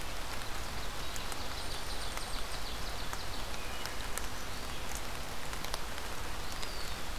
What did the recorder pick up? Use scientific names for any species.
Seiurus aurocapilla, unidentified call, Hylocichla mustelina, Contopus virens